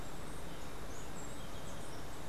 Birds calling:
Steely-vented Hummingbird (Saucerottia saucerottei), Golden-faced Tyrannulet (Zimmerius chrysops)

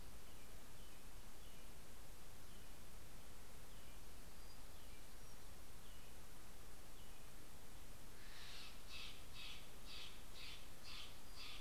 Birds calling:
American Robin (Turdus migratorius), Steller's Jay (Cyanocitta stelleri), Townsend's Warbler (Setophaga townsendi)

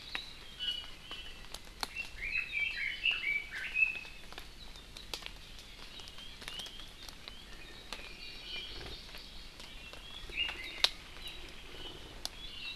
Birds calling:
Iiwi (Drepanis coccinea), Hawaii Amakihi (Chlorodrepanis virens), Red-billed Leiothrix (Leiothrix lutea)

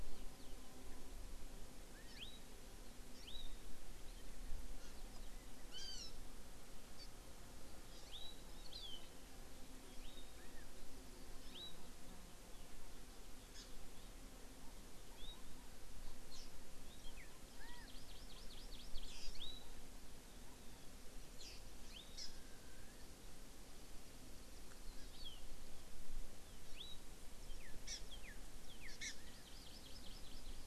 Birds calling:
Northern Cardinal (Cardinalis cardinalis), Hawaii Amakihi (Chlorodrepanis virens), Chinese Hwamei (Garrulax canorus)

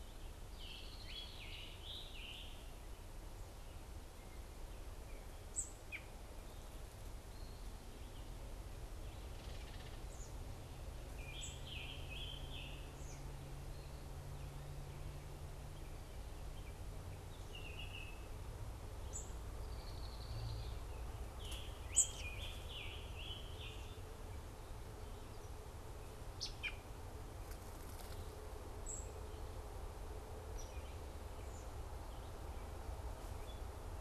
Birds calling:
Scarlet Tanager (Piranga olivacea), Hairy Woodpecker (Dryobates villosus), Baltimore Oriole (Icterus galbula), Red-winged Blackbird (Agelaius phoeniceus), American Robin (Turdus migratorius), unidentified bird

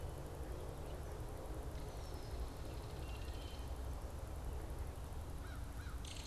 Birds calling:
Red-winged Blackbird (Agelaius phoeniceus), Belted Kingfisher (Megaceryle alcyon), American Crow (Corvus brachyrhynchos)

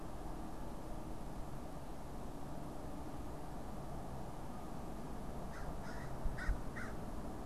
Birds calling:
American Crow (Corvus brachyrhynchos)

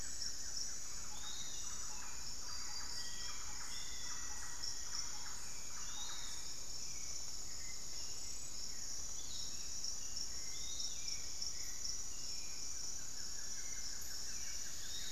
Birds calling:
Piratic Flycatcher (Legatus leucophaius), Thrush-like Wren (Campylorhynchus turdinus), Long-winged Antwren (Myrmotherula longipennis), Black-faced Antthrush (Formicarius analis), Buff-throated Woodcreeper (Xiphorhynchus guttatus), Hauxwell's Thrush (Turdus hauxwelli)

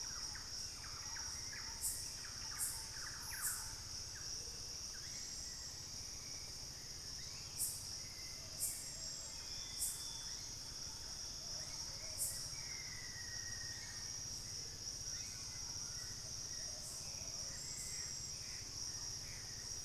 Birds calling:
unidentified bird, White-bellied Tody-Tyrant (Hemitriccus griseipectus), Hauxwell's Thrush (Turdus hauxwelli), Thrush-like Wren (Campylorhynchus turdinus), Plumbeous Pigeon (Patagioenas plumbea), Mealy Parrot (Amazona farinosa), Gray Antbird (Cercomacra cinerascens), Black-faced Antthrush (Formicarius analis), Amazonian Motmot (Momotus momota)

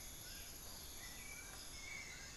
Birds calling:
Dull-capped Attila (Attila bolivianus), Amazonian Barred-Woodcreeper (Dendrocolaptes certhia), White-necked Thrush (Turdus albicollis)

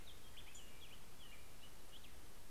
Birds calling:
Black-headed Grosbeak (Pheucticus melanocephalus), Black-throated Gray Warbler (Setophaga nigrescens)

